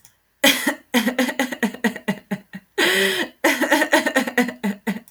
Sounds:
Laughter